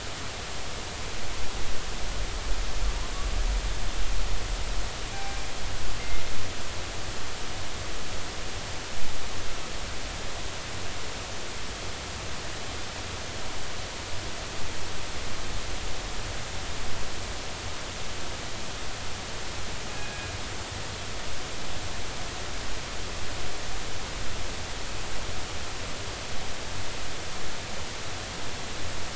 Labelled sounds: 5.1	5.4	killer whale, northern resident, G clan, call N24ii, 0.80 to 2.5 kHz
19.9	20.3	killer whale, northern resident, G clan, call N24ii, 1.6 to 2.6 kHz

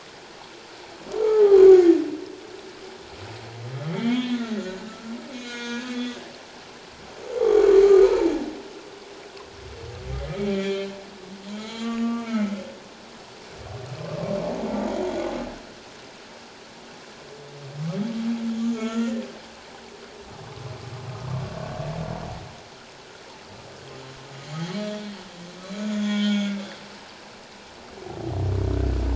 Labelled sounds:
1.2	1.6	humpback whale, 0.78 to 0.94 kHz
3.9	6.2	humpback whale, 0.91 to 6.7 kHz
7.4	8.3	humpback whale, 0.84 to 1.4 kHz
10.5	10.9	humpback whale, 2.1 to 4.4 kHz
11.5	12.5	humpback whale, 1.1 to 7.2 kHz
18.8	19.2	humpback whale, 1.2 to 1.9 kHz
24.8	25.2	humpback whale, 3.2 to 3.4 kHz
25.6	26.6	humpback whale, 1.4 to 3.8 kHz

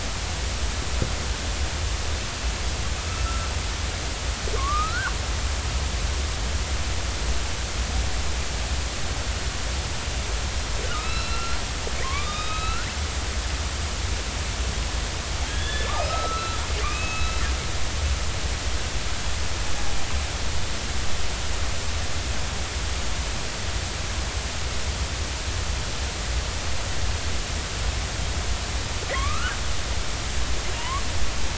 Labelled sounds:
3.2	3.5	killer whale, northern resident, 1.3 to 1.4 kHz
4.6	5.1	killer whale, northern resident, 1.0 to 1.6 kHz
10.8	12.9	killer whale, northern resident, 0.99 to 5.1 kHz
15.5	17.4	killer whale, northern resident, 0.93 to 3.6 kHz
29.1	29.6	killer whale, northern resident, 0.99 to 2.7 kHz
30.8	31.0	killer whale, northern resident, 0.90 to 1.2 kHz

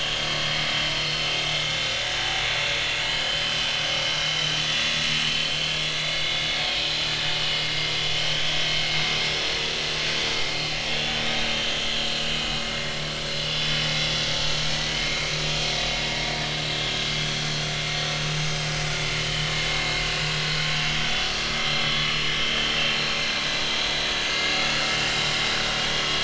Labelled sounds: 1.5	2.0	vessel noise, 3.4 to 3.8 kHz
3.0	4.6	vessel noise, 2.8 to 6.1 kHz
5.1	5.4	vessel noise, 4.1 to 4.3 kHz
5.9	6.4	vessel noise, 3.4 to 4.8 kHz
7.4	7.7	vessel noise, 2.8 to 3.0 kHz
13.5	13.8	vessel noise, 3.3 to 3.5 kHz
15.0	15.2	vessel noise, 2.1 to 2.5 kHz
16.7	16.9	vessel noise, 3.5 to 3.6 kHz
19.2	19.5	vessel noise, 2.9 to 3.1 kHz
20.0	20.3	vessel noise, 2.8 to 2.9 kHz
21.7	23.2	vessel noise, 3.0 to 4.3 kHz
24.3	24.6	vessel noise, 1.6 to 2.9 kHz

